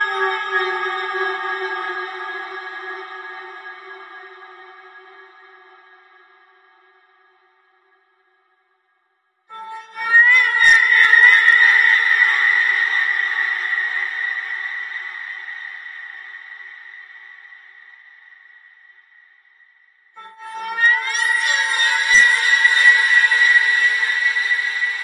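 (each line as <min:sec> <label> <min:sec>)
0:00.2 A scary sound creates a fearful background. 0:03.7
0:09.5 A deep, horror-like echo wavers unpredictably. 0:15.5
0:20.2 A deep, echoing, horror-like sound wavers unpredictably with crying. 0:25.0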